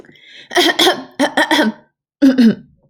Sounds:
Cough